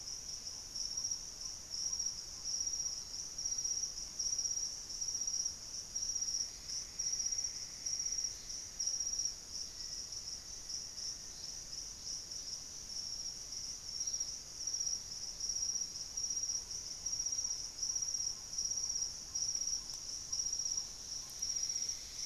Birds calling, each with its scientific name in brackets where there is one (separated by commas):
Black-faced Antthrush (Formicarius analis), Ferruginous Pygmy-Owl (Glaucidium brasilianum)